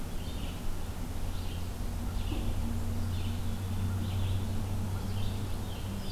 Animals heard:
Red-eyed Vireo (Vireo olivaceus)

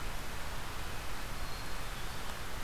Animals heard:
Black-capped Chickadee (Poecile atricapillus)

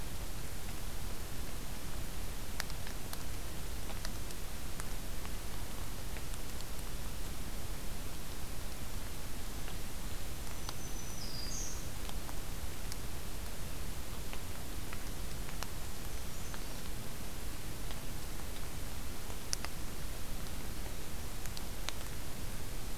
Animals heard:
Black-throated Green Warbler (Setophaga virens), Brown Creeper (Certhia americana)

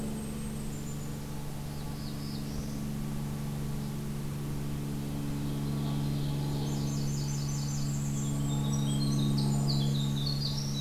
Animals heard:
Blackburnian Warbler (Setophaga fusca), Winter Wren (Troglodytes hiemalis), Golden-crowned Kinglet (Regulus satrapa), Northern Parula (Setophaga americana), Ovenbird (Seiurus aurocapilla)

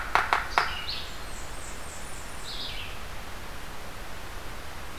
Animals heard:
Red-eyed Vireo (Vireo olivaceus), Blackburnian Warbler (Setophaga fusca), Yellow-bellied Sapsucker (Sphyrapicus varius)

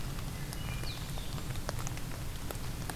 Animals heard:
Blue-headed Vireo (Vireo solitarius), Wood Thrush (Hylocichla mustelina)

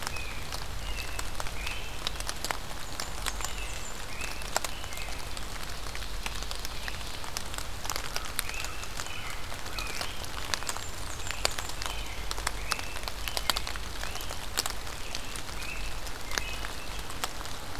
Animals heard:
American Crow (Corvus brachyrhynchos), American Robin (Turdus migratorius), Ovenbird (Seiurus aurocapilla), Great Crested Flycatcher (Myiarchus crinitus), Blackburnian Warbler (Setophaga fusca)

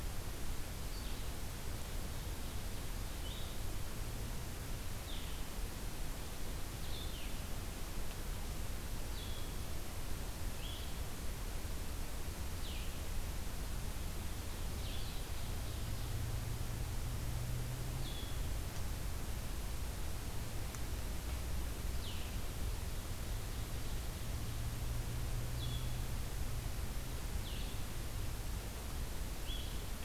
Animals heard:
Blue-headed Vireo (Vireo solitarius), Ovenbird (Seiurus aurocapilla)

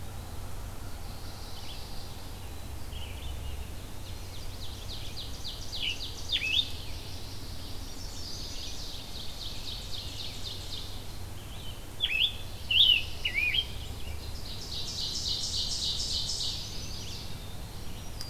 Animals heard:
Mourning Warbler (Geothlypis philadelphia), Scarlet Tanager (Piranga olivacea), Red-eyed Vireo (Vireo olivaceus), Chestnut-sided Warbler (Setophaga pensylvanica), Black-capped Chickadee (Poecile atricapillus), Black-throated Green Warbler (Setophaga virens), Ovenbird (Seiurus aurocapilla)

